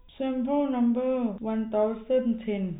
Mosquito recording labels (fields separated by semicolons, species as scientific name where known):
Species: no mosquito; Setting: cup